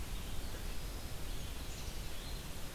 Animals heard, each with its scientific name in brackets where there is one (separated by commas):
Winter Wren (Troglodytes hiemalis)